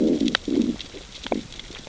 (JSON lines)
{"label": "biophony, growl", "recorder": "SoundTrap 600 or HydroMoth"}